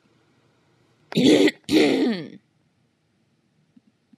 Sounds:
Throat clearing